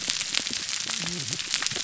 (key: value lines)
label: biophony
recorder: SoundTrap 300